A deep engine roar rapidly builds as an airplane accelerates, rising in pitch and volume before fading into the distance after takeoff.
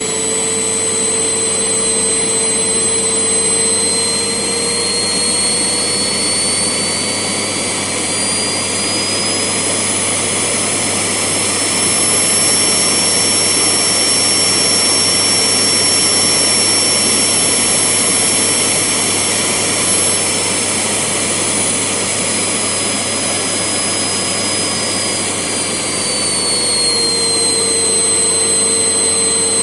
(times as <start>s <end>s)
3.5s 26.9s